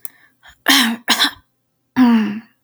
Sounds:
Throat clearing